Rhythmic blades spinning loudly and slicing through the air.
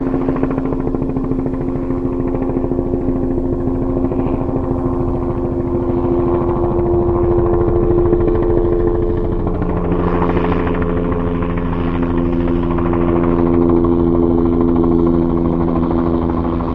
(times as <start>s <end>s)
5.6s 16.6s